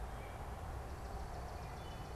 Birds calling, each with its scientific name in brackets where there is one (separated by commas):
Swamp Sparrow (Melospiza georgiana), American Robin (Turdus migratorius)